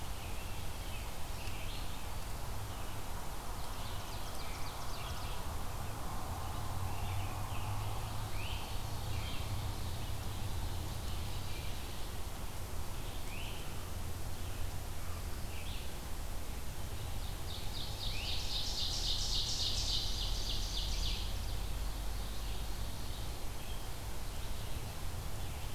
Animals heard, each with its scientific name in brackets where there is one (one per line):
Great Crested Flycatcher (Myiarchus crinitus)
Ovenbird (Seiurus aurocapilla)
American Robin (Turdus migratorius)
Red-eyed Vireo (Vireo olivaceus)